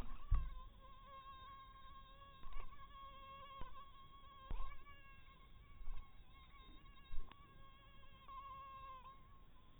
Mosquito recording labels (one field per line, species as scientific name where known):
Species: mosquito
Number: one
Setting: cup